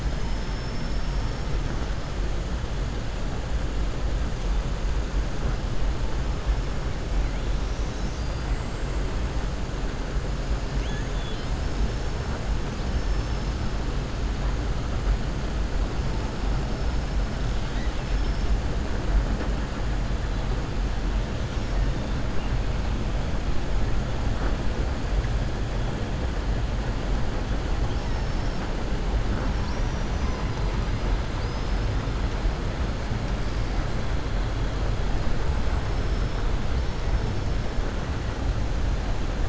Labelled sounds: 0.0	1.6	killer whale, southern resident, 4.6 to 6.0 kHz
10.7	11.6	killer whale, southern resident, 1.7 to 4.3 kHz
27.9	28.6	killer whale, southern resident, 4.5 to 6.3 kHz
29.5	30.4	killer whale, southern resident, 4.1 to 6.0 kHz
31.3	31.9	killer whale, southern resident, 4.1 to 6.2 kHz

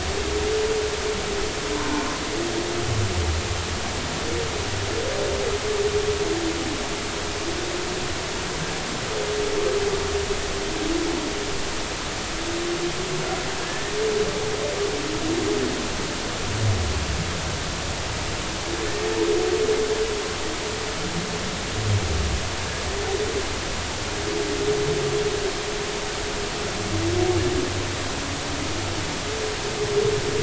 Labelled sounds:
13.6	13.9	humpback whale, 1.6 to 1.9 kHz

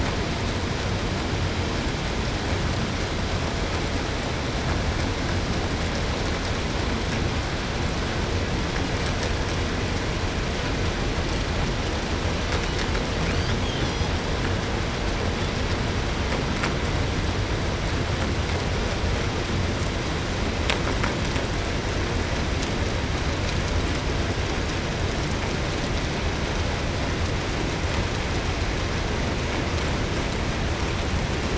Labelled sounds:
13.2	14.2	killer whale, southern resident, 1.1 to 7.0 kHz
15.3	15.7	killer whale, 3.2 to 3.8 kHz

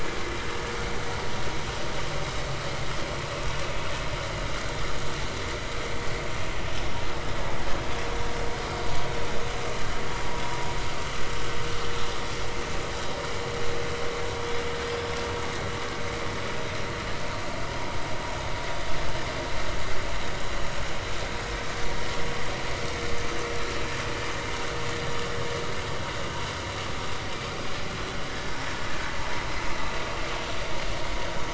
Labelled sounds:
10.8	11.1	vessel noise, 4.5 to 4.7 kHz

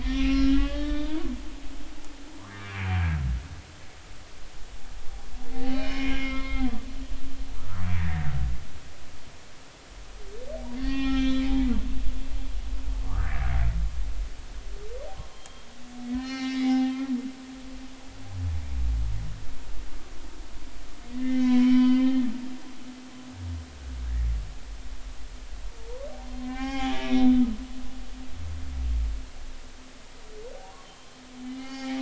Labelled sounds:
0.0	1.1	humpback whale, 1.1 to 3.9 kHz
2.5	3.0	humpback whale, 1.6 to 2.5 kHz
5.5	6.7	humpback whale, 0.80 to 3.8 kHz
7.6	8.3	humpback whale, 1.1 to 2.1 kHz
10.8	11.8	humpback whale, 0.80 to 6.1 kHz
13.1	13.5	humpback whale, 1.0 to 1.8 kHz
15.3	16.9	humpback whale, 0.80 to 5.9 kHz
21.1	22.2	humpback whale, 0.96 to 4.9 kHz
26.4	27.5	humpback whale, 0.80 to 4.0 kHz
30.5	31.9	humpback whale, 0.80 to 4.6 kHz

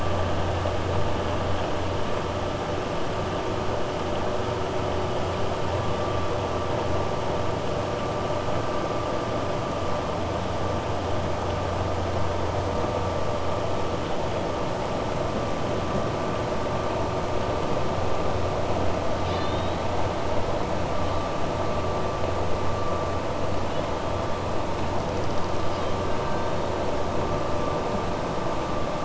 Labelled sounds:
19.1	19.8	killer whale, 2.4 to 5.3 kHz

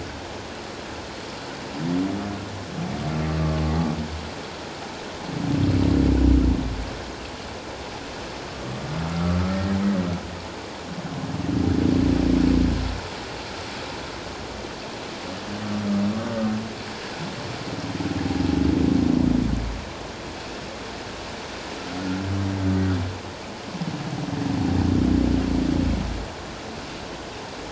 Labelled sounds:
9.1	9.8	humpback whale, 1.2 to 1.9 kHz

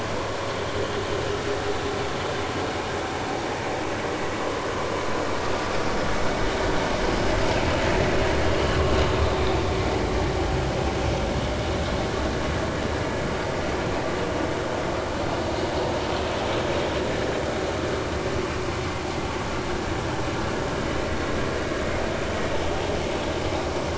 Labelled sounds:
8.5	8.8	vessel noise, 2.8 to 3.0 kHz

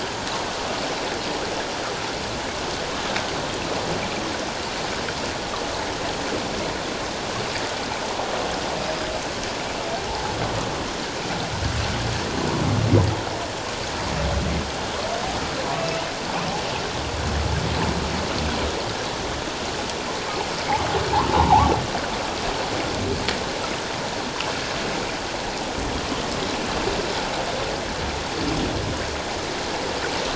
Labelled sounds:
10.1	10.3	humpback whale, 0.78 to 0.94 kHz
15.8	16.1	humpback whale, 2.6 to 3.1 kHz
21.3	21.7	humpback whale, 0.78 to 1.2 kHz

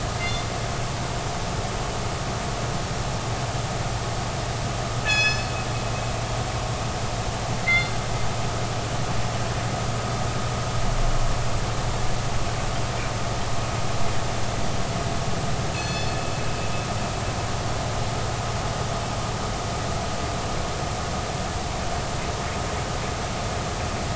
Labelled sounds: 0.2	0.4	killer whale, northern resident, G clan, call N24ii, 2.0 to 2.1 kHz
5.0	5.5	killer whale, northern resident, G clan, call N24ii, 1.6 to 7.0 kHz
7.6	7.9	killer whale, northern resident, G clan, call N24ii, 1.9 to 4.3 kHz
15.7	16.2	killer whale, northern resident, G clan, call N24ii, 1.7 to 6.1 kHz

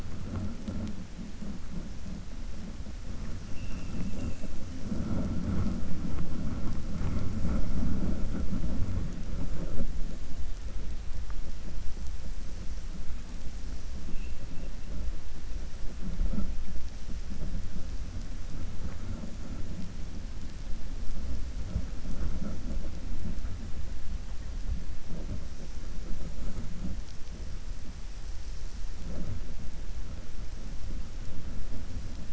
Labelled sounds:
3.4	4.4	vessel noise, 2.0 to 3.0 kHz

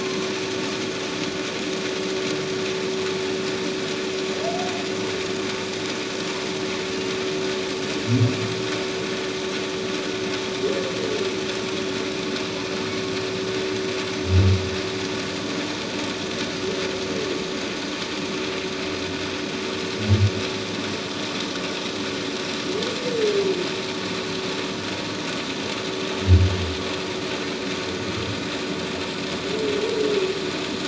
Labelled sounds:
0.0	0.3	humpback whale, 1.0 to 1.2 kHz

